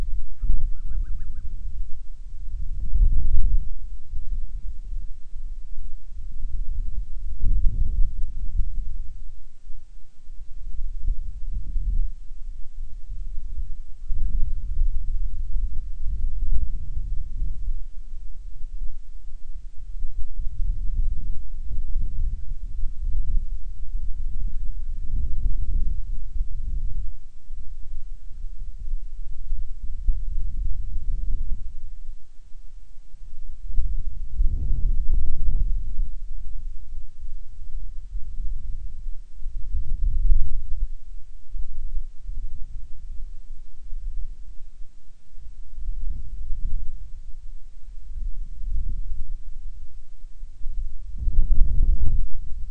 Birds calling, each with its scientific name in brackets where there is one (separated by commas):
Band-rumped Storm-Petrel (Hydrobates castro)